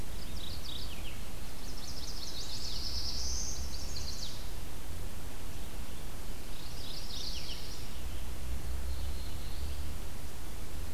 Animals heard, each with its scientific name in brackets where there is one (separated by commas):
Black-throated Blue Warbler (Setophaga caerulescens), Red-eyed Vireo (Vireo olivaceus), Chestnut-sided Warbler (Setophaga pensylvanica), Mourning Warbler (Geothlypis philadelphia)